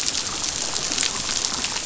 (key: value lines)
label: biophony, chatter
recorder: SoundTrap 500